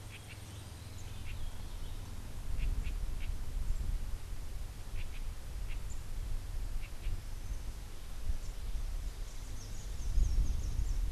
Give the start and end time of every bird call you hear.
0.0s-7.1s: House Wren (Troglodytes aedon)
9.1s-11.1s: Rufous-capped Warbler (Basileuterus rufifrons)

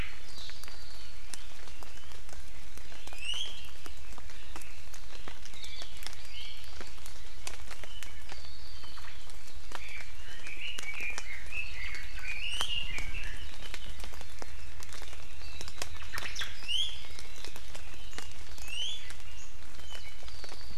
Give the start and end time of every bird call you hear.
3.1s-3.6s: Iiwi (Drepanis coccinea)
5.6s-5.9s: Hawaii Akepa (Loxops coccineus)
9.6s-12.4s: Red-billed Leiothrix (Leiothrix lutea)
12.3s-12.7s: Iiwi (Drepanis coccinea)
16.1s-16.5s: Omao (Myadestes obscurus)
16.6s-16.9s: Iiwi (Drepanis coccinea)
18.6s-19.1s: Iiwi (Drepanis coccinea)

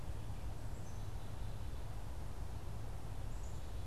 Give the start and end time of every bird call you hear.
0.0s-3.9s: Black-capped Chickadee (Poecile atricapillus)

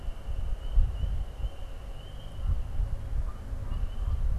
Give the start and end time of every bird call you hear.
2.2s-4.3s: Canada Goose (Branta canadensis)

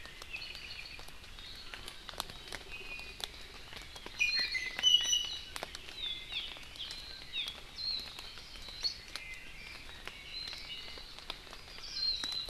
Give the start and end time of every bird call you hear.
0.3s-1.1s: Apapane (Himatione sanguinea)
2.7s-3.3s: Iiwi (Drepanis coccinea)
4.1s-5.6s: Iiwi (Drepanis coccinea)
6.3s-6.5s: Hawaii Amakihi (Chlorodrepanis virens)
7.3s-7.5s: Hawaii Amakihi (Chlorodrepanis virens)
7.7s-8.0s: Warbling White-eye (Zosterops japonicus)
9.1s-11.1s: Red-billed Leiothrix (Leiothrix lutea)
10.3s-10.6s: Warbling White-eye (Zosterops japonicus)
11.9s-12.4s: Warbling White-eye (Zosterops japonicus)

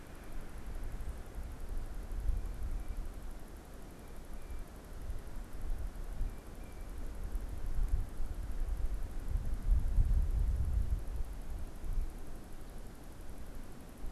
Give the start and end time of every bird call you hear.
0.0s-7.0s: unidentified bird

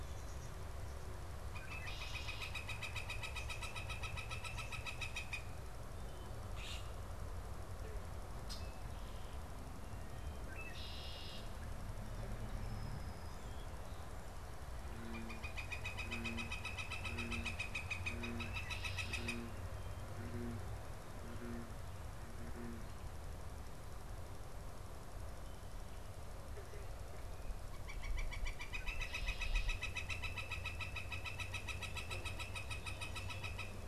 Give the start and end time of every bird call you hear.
0.0s-11.5s: Red-winged Blackbird (Agelaius phoeniceus)
1.6s-5.6s: Northern Flicker (Colaptes auratus)
6.5s-6.9s: unidentified bird
12.5s-13.8s: Song Sparrow (Melospiza melodia)
14.8s-19.5s: Northern Flicker (Colaptes auratus)
27.5s-33.8s: Northern Flicker (Colaptes auratus)

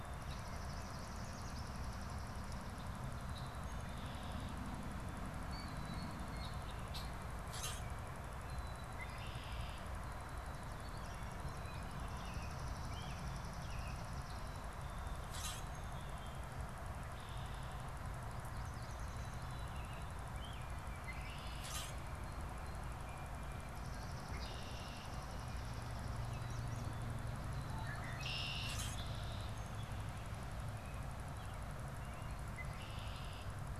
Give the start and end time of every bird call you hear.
0.0s-2.9s: Swamp Sparrow (Melospiza georgiana)
0.5s-1.9s: Yellow Warbler (Setophaga petechia)
3.7s-4.7s: Red-winged Blackbird (Agelaius phoeniceus)
5.3s-6.9s: Blue Jay (Cyanocitta cristata)
7.5s-8.0s: Common Grackle (Quiscalus quiscula)
8.7s-9.9s: Red-winged Blackbird (Agelaius phoeniceus)
10.8s-11.9s: Yellow Warbler (Setophaga petechia)
12.0s-14.5s: Swamp Sparrow (Melospiza georgiana)
15.2s-15.8s: Common Grackle (Quiscalus quiscula)
18.2s-19.6s: Yellow Warbler (Setophaga petechia)
19.1s-21.5s: American Robin (Turdus migratorius)
21.5s-22.1s: Common Grackle (Quiscalus quiscula)
23.5s-26.4s: Swamp Sparrow (Melospiza georgiana)
25.8s-27.2s: Yellow Warbler (Setophaga petechia)
27.4s-29.7s: Red-winged Blackbird (Agelaius phoeniceus)
28.6s-29.1s: Common Grackle (Quiscalus quiscula)
29.7s-32.4s: American Robin (Turdus migratorius)
32.3s-33.7s: Red-winged Blackbird (Agelaius phoeniceus)

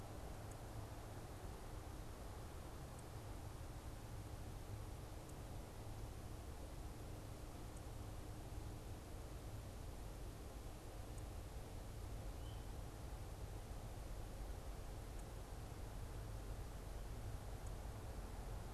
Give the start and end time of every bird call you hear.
12.3s-12.6s: unidentified bird

